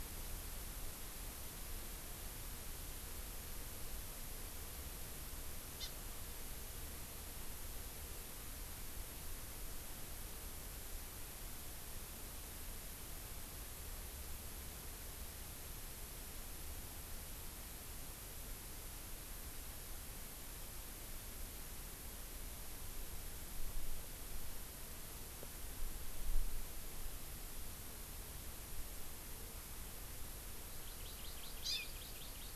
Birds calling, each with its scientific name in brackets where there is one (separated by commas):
Hawaii Amakihi (Chlorodrepanis virens)